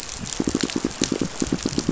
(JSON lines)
{"label": "biophony, pulse", "recorder": "SoundTrap 500"}